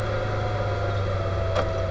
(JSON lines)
{"label": "anthrophony, boat engine", "recorder": "SoundTrap 300"}